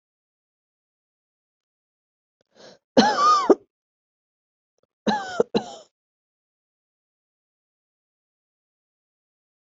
{"expert_labels": [{"quality": "good", "cough_type": "dry", "dyspnea": false, "wheezing": true, "stridor": false, "choking": false, "congestion": false, "nothing": false, "diagnosis": "obstructive lung disease", "severity": "mild"}], "age": 34, "gender": "female", "respiratory_condition": false, "fever_muscle_pain": true, "status": "symptomatic"}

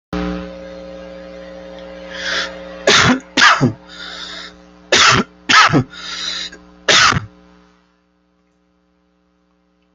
{"expert_labels": [{"quality": "poor", "cough_type": "dry", "dyspnea": false, "wheezing": false, "stridor": false, "choking": false, "congestion": false, "nothing": true, "diagnosis": "lower respiratory tract infection", "severity": "mild"}], "age": 37, "gender": "male", "respiratory_condition": false, "fever_muscle_pain": false, "status": "healthy"}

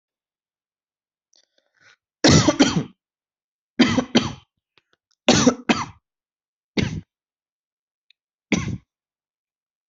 {"expert_labels": [{"quality": "good", "cough_type": "wet", "dyspnea": false, "wheezing": false, "stridor": false, "choking": false, "congestion": false, "nothing": true, "diagnosis": "lower respiratory tract infection", "severity": "severe"}], "age": 19, "gender": "male", "respiratory_condition": false, "fever_muscle_pain": false, "status": "healthy"}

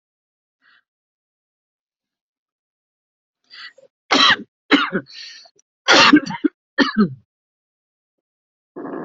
{"expert_labels": [{"quality": "ok", "cough_type": "dry", "dyspnea": false, "wheezing": false, "stridor": false, "choking": false, "congestion": false, "nothing": true, "diagnosis": "COVID-19", "severity": "mild"}], "age": 53, "gender": "male", "respiratory_condition": false, "fever_muscle_pain": false, "status": "symptomatic"}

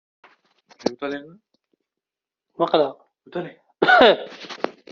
{"expert_labels": [{"quality": "ok", "cough_type": "dry", "dyspnea": false, "wheezing": false, "stridor": false, "choking": false, "congestion": false, "nothing": true, "diagnosis": "healthy cough", "severity": "pseudocough/healthy cough"}], "gender": "female", "respiratory_condition": false, "fever_muscle_pain": false, "status": "COVID-19"}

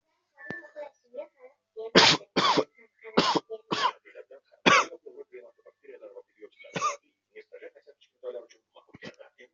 {"expert_labels": [{"quality": "ok", "cough_type": "dry", "dyspnea": false, "wheezing": true, "stridor": false, "choking": false, "congestion": false, "nothing": false, "diagnosis": "COVID-19", "severity": "mild"}], "gender": "female", "respiratory_condition": false, "fever_muscle_pain": false, "status": "healthy"}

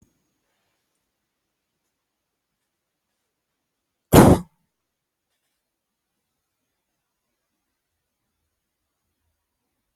{"expert_labels": [{"quality": "good", "cough_type": "unknown", "dyspnea": false, "wheezing": false, "stridor": false, "choking": false, "congestion": false, "nothing": true, "diagnosis": "upper respiratory tract infection", "severity": "unknown"}]}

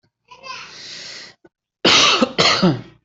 {"expert_labels": [{"quality": "good", "cough_type": "dry", "dyspnea": false, "wheezing": false, "stridor": false, "choking": false, "congestion": false, "nothing": true, "diagnosis": "healthy cough", "severity": "pseudocough/healthy cough"}], "age": 36, "gender": "male", "respiratory_condition": true, "fever_muscle_pain": false, "status": "COVID-19"}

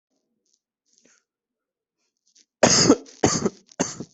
{"expert_labels": [{"quality": "good", "cough_type": "wet", "dyspnea": false, "wheezing": false, "stridor": false, "choking": false, "congestion": false, "nothing": true, "diagnosis": "lower respiratory tract infection", "severity": "mild"}], "age": 25, "gender": "male", "respiratory_condition": false, "fever_muscle_pain": false, "status": "symptomatic"}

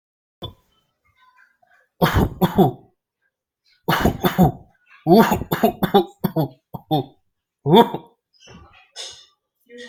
{"expert_labels": [{"quality": "good", "cough_type": "unknown", "dyspnea": false, "wheezing": false, "stridor": false, "choking": false, "congestion": false, "nothing": true, "diagnosis": "upper respiratory tract infection", "severity": "mild"}], "age": 26, "gender": "male", "respiratory_condition": false, "fever_muscle_pain": false, "status": "healthy"}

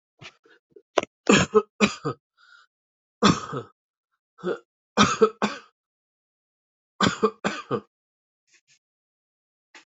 {"expert_labels": [{"quality": "good", "cough_type": "dry", "dyspnea": false, "wheezing": false, "stridor": false, "choking": false, "congestion": false, "nothing": true, "diagnosis": "upper respiratory tract infection", "severity": "mild"}], "age": 38, "gender": "male", "respiratory_condition": true, "fever_muscle_pain": false, "status": "COVID-19"}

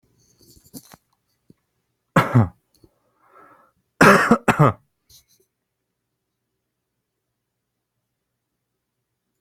{"expert_labels": [{"quality": "good", "cough_type": "dry", "dyspnea": false, "wheezing": false, "stridor": false, "choking": false, "congestion": false, "nothing": true, "diagnosis": "COVID-19", "severity": "mild"}], "age": 26, "gender": "male", "respiratory_condition": false, "fever_muscle_pain": false, "status": "healthy"}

